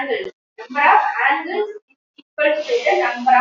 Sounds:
Sigh